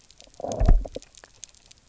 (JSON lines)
{"label": "biophony, low growl", "recorder": "SoundTrap 300"}